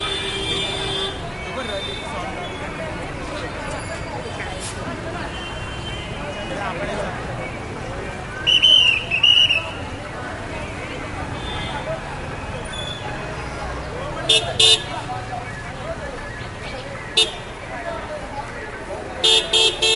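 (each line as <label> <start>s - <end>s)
A car horn honks repeatedly while people talk in the street. 0.1s - 8.0s
A policeman whistles. 8.2s - 10.0s
People talking with occasional car honks. 10.0s - 20.0s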